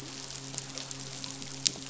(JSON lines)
{"label": "biophony, midshipman", "recorder": "SoundTrap 500"}